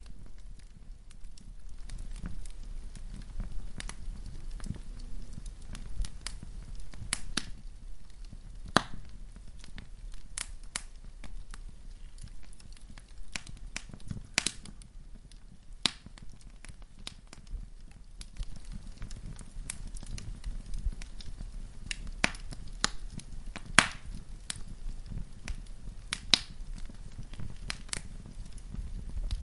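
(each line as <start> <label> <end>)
0.0 Rhythmic crackling of a burning campfire. 3.8
3.8 Wood cracking sounds. 4.0
4.0 A campfire is burning. 5.8
5.9 Wood crackling repeatedly. 7.5
7.6 A campfire is burning. 8.7
8.7 A loud wood crackle. 8.8
10.4 Wood snapping. 10.8
13.3 Wood crackles in quick succession. 14.6
15.8 Wood crackling. 16.0
16.0 A campfire burns with occasional crackling of wood. 22.0
22.2 Wood snapping loudly. 22.3
22.8 Wood crackling. 22.9
23.7 Wood snaps loudly. 23.9
26.1 Wood snaps twice. 26.4
27.6 Wood snaps quietly twice. 28.1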